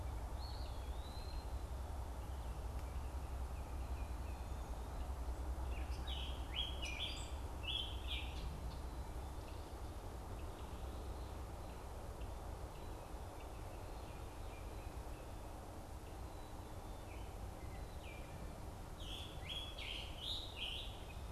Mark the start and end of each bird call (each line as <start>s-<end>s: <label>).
0.2s-1.6s: Eastern Wood-Pewee (Contopus virens)
5.5s-7.4s: Gray Catbird (Dumetella carolinensis)
5.9s-8.5s: Scarlet Tanager (Piranga olivacea)
17.0s-18.4s: Baltimore Oriole (Icterus galbula)
18.7s-21.2s: Scarlet Tanager (Piranga olivacea)